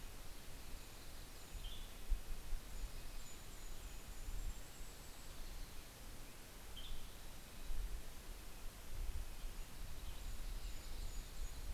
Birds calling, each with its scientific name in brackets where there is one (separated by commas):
Yellow-rumped Warbler (Setophaga coronata), Red-breasted Nuthatch (Sitta canadensis), Mountain Chickadee (Poecile gambeli), Golden-crowned Kinglet (Regulus satrapa), Western Tanager (Piranga ludoviciana)